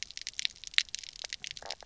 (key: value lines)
label: biophony, stridulation
recorder: SoundTrap 300